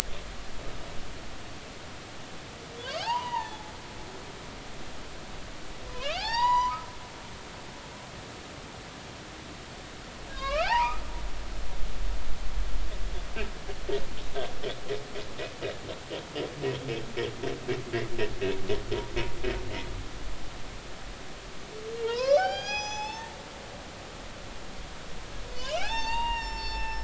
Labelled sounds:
2.8	3.6	humpback whale, 0.80 to 3.2 kHz
5.9	6.8	humpback whale, 0.80 to 7.0 kHz
10.3	11.0	humpback whale, 0.80 to 5.1 kHz
22.0	23.3	humpback whale, 0.80 to 6.8 kHz
25.5	27.0	humpback whale, 0.80 to 7.5 kHz

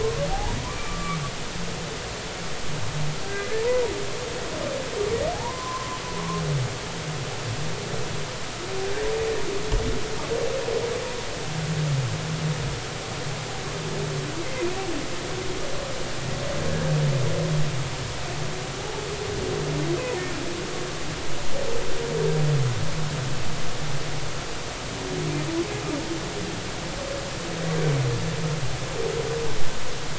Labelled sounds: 0.0	1.2	humpback whale, 0.80 to 1.3 kHz
3.6	3.9	humpback whale, 0.90 to 1.1 kHz
5.3	6.0	humpback whale, 0.80 to 1.2 kHz
18.8	19.0	humpback whale, 0.80 to 0.93 kHz

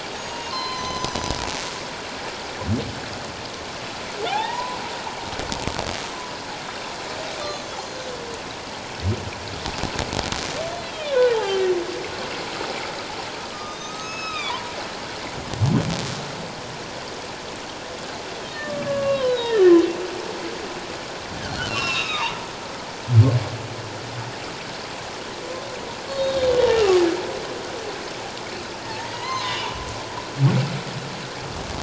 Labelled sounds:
0.2	1.4	humpback whale, 0.91 to 6.7 kHz
4.3	4.8	humpback whale, 0.78 to 1.1 kHz
11.4	11.7	humpback whale, 1.5 to 2.9 kHz
13.5	14.7	humpback whale, 0.91 to 6.6 kHz
18.5	19.8	humpback whale, 0.97 to 4.1 kHz
21.7	22.5	humpback whale, 0.88 to 4.3 kHz
26.1	27.0	humpback whale, 1.1 to 4.4 kHz
29.0	29.8	humpback whale, 0.88 to 4.2 kHz

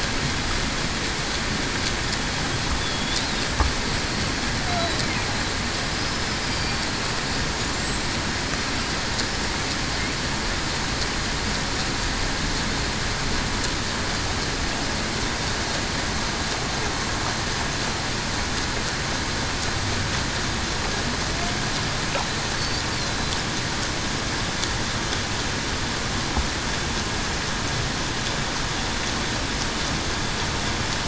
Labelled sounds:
2.8	3.1	killer whale, Bigg's (transient), 3.3 to 3.5 kHz

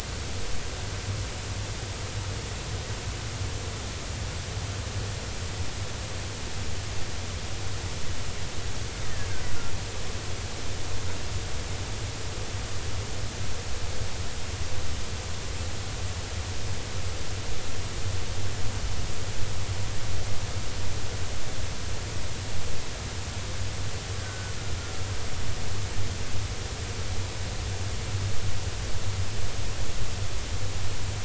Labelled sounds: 24.2	24.5	killer whale, 1.4 to 1.7 kHz

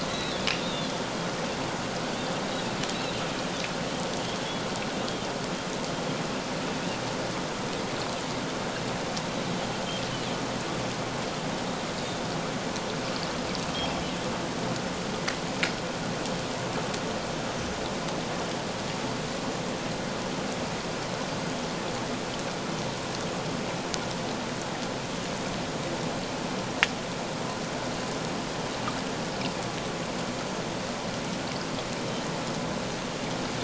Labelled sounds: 0.1	0.9	Pacific white-sided dolphin, 3.3 to 4.1 kHz
2.9	3.2	Pacific white-sided dolphin, 2.6 to 2.9 kHz

